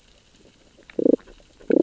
{"label": "biophony, damselfish", "recorder": "SoundTrap 600 or HydroMoth"}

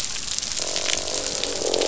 {"label": "biophony, croak", "recorder": "SoundTrap 500"}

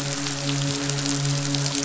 {"label": "biophony, midshipman", "recorder": "SoundTrap 500"}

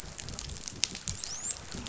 {"label": "biophony, dolphin", "recorder": "SoundTrap 500"}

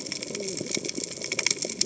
{"label": "biophony, cascading saw", "recorder": "HydroMoth"}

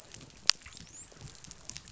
{"label": "biophony, dolphin", "recorder": "SoundTrap 500"}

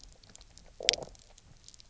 {"label": "biophony, low growl", "recorder": "SoundTrap 300"}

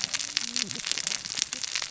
{"label": "biophony, cascading saw", "recorder": "SoundTrap 600 or HydroMoth"}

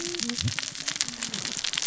{"label": "biophony, cascading saw", "recorder": "SoundTrap 600 or HydroMoth"}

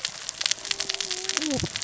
{"label": "biophony, cascading saw", "recorder": "SoundTrap 600 or HydroMoth"}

